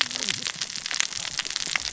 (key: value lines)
label: biophony, cascading saw
recorder: SoundTrap 600 or HydroMoth